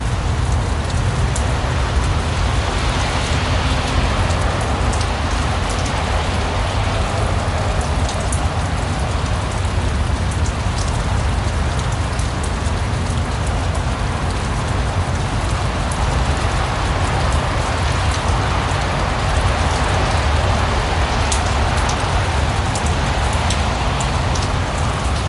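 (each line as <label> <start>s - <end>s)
Loud rain in a city with water splashing and traffic sounds in the background. 0.0s - 25.3s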